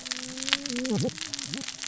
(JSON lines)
{"label": "biophony, cascading saw", "recorder": "SoundTrap 600 or HydroMoth"}